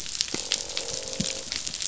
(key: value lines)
label: biophony, croak
recorder: SoundTrap 500